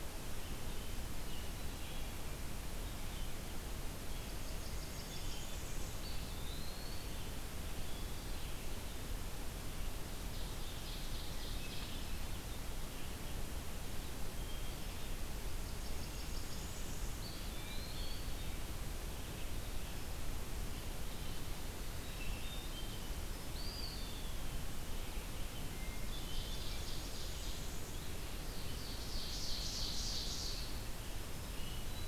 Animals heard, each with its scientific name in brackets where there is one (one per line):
Red-eyed Vireo (Vireo olivaceus)
Ovenbird (Seiurus aurocapilla)
Eastern Wood-Pewee (Contopus virens)
Hermit Thrush (Catharus guttatus)
Blackburnian Warbler (Setophaga fusca)